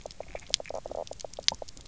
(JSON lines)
{"label": "biophony, knock croak", "recorder": "SoundTrap 300"}